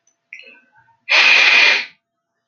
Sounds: Sniff